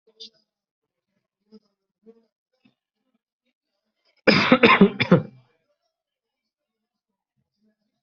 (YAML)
expert_labels:
- quality: ok
  cough_type: dry
  dyspnea: false
  wheezing: false
  stridor: false
  choking: false
  congestion: false
  nothing: true
  diagnosis: COVID-19
  severity: mild
age: 33
gender: male
respiratory_condition: false
fever_muscle_pain: false
status: healthy